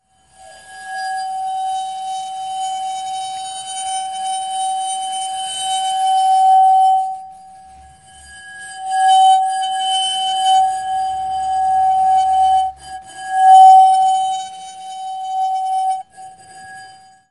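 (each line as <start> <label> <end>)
0.1 An A/B setup alternates between two sharp, edgy mixes, highlighting their piercing tonal differences. 17.3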